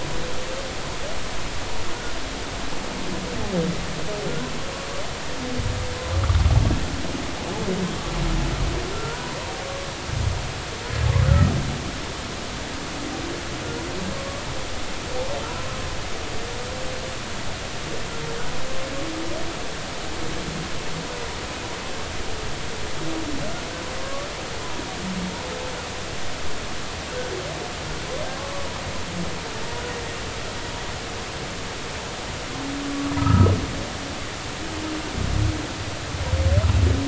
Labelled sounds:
8.9	9.3	humpback whale, 1.2 to 1.5 kHz
11.3	11.5	humpback whale, 1.2 to 1.5 kHz
24.0	24.3	humpback whale, 1.0 to 1.2 kHz
28.4	28.7	humpback whale, 1.0 to 1.2 kHz
32.9	33.5	humpback whale, 1.1 to 1.4 kHz

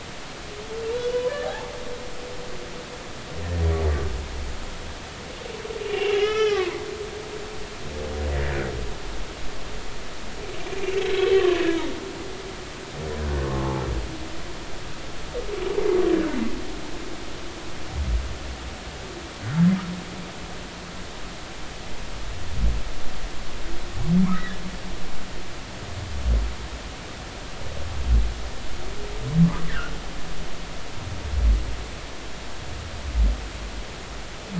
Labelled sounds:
1.0	1.7	humpback whale, 0.80 to 3.0 kHz
5.8	6.8	humpback whale, 0.80 to 5.3 kHz
10.7	11.9	humpback whale, 0.99 to 3.8 kHz
13.4	13.8	humpback whale, 0.83 to 1.2 kHz
24.2	24.6	humpback whale, 0.96 to 2.0 kHz

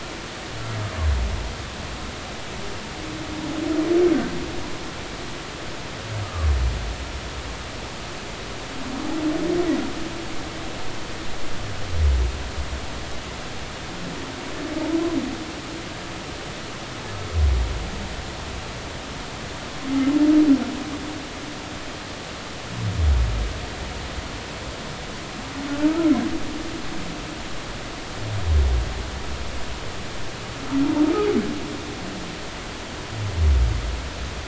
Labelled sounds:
6.2	6.5	humpback whale, 1.1 to 1.3 kHz

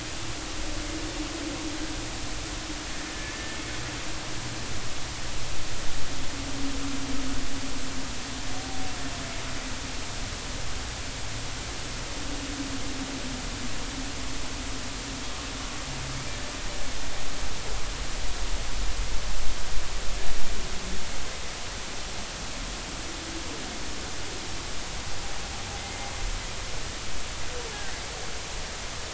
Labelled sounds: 25.8	26.1	humpback whale, 2.0 to 2.2 kHz

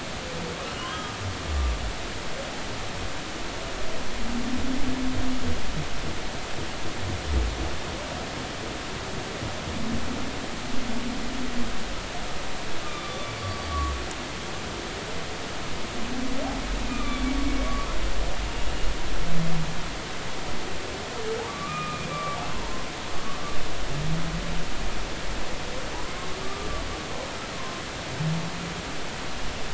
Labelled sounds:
0.7	1.1	humpback whale, 2.8 to 3.3 kHz
12.8	13.3	humpback whale, 1.1 to 3.6 kHz
16.9	17.2	humpback whale, 1.1 to 2.5 kHz
21.5	22.8	humpback whale, 0.86 to 2.5 kHz
26.4	26.9	humpback whale, 1.1 to 1.3 kHz
27.5	27.8	humpback whale, 0.96 to 1.1 kHz

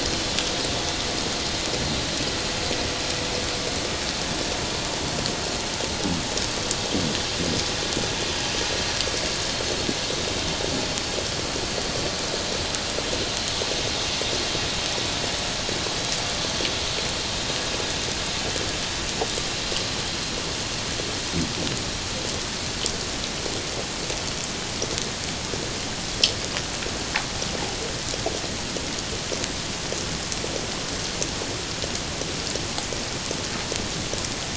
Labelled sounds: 0.2	0.5	vessel noise, 3.3 to 3.5 kHz

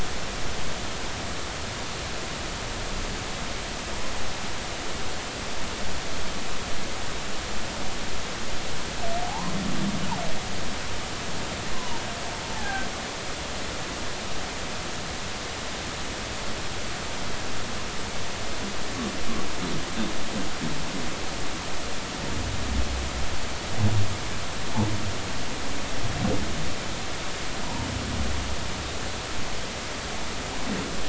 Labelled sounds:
9.2	9.6	humpback whale, 0.80 to 1.1 kHz
11.7	12.9	humpback whale, 0.80 to 1.8 kHz
27.6	27.9	humpback whale, 0.80 to 1.0 kHz

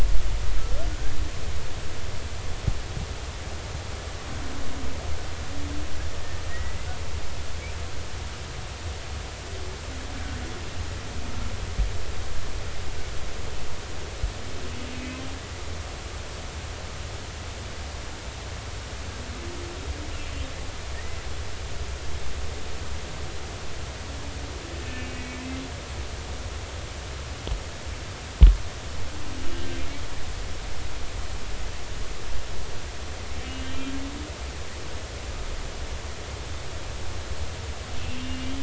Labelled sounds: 0.6	0.9	humpback whale, 1.3 to 1.4 kHz
6.5	6.8	humpback whale, 1.8 to 2.0 kHz
14.9	15.2	humpback whale, 2.4 to 2.6 kHz
24.8	25.2	humpback whale, 2.5 to 2.8 kHz
29.4	29.7	humpback whale, 2.8 to 2.9 kHz
33.6	34.0	humpback whale, 3.1 to 3.2 kHz
38.0	38.5	humpback whale, 2.8 to 2.9 kHz

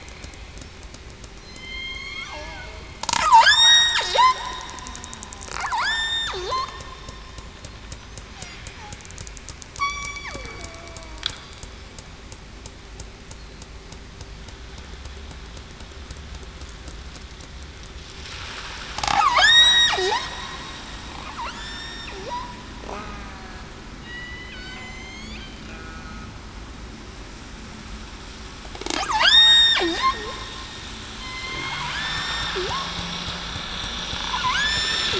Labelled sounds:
1.5	2.3	killer whale, southern resident, 1.0 to 4.3 kHz
3.4	4.0	killer whale, southern resident, 1.4 to 8.0 kHz
5.7	6.3	killer whale, southern resident, 0.77 to 8.0 kHz
9.8	10.3	killer whale, southern resident, 1.1 to 2.3 kHz
10.6	11.0	killer whale, southern resident, 0.63 to 0.70 kHz
19.4	19.9	killer whale, southern resident, 3.6 to 8.0 kHz
21.5	22.0	killer whale, southern resident, 6.8 to 8.0 kHz
22.9	23.3	killer whale, southern resident, 1.2 to 1.3 kHz
24.0	25.4	killer whale, southern resident, 2.0 to 7.6 kHz
25.7	26.3	killer whale, southern resident, 1.4 to 1.5 kHz
29.1	29.8	killer whale, southern resident, 1.3 to 8.0 kHz
31.2	31.5	killer whale, southern resident, 4.1 to 4.2 kHz
31.9	32.4	killer whale, southern resident, 1.5 to 1.8 kHz
34.5	35.0	killer whale, southern resident, 1.4 to 3.7 kHz

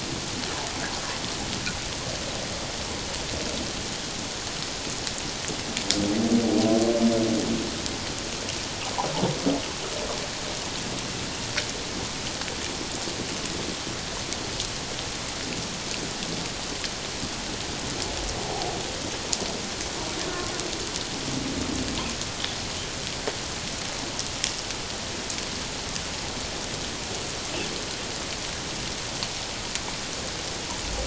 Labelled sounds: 18.5	18.8	humpback whale, 0.78 to 0.84 kHz

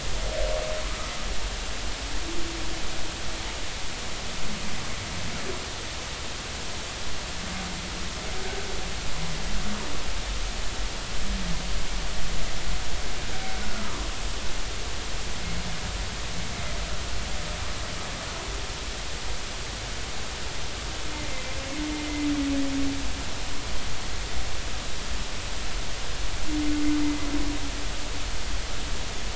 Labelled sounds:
13.6	14.0	humpback whale, 0.90 to 1.5 kHz
21.3	21.5	humpback whale, 2.0 to 2.1 kHz
27.0	27.3	humpback whale, 2.0 to 2.1 kHz

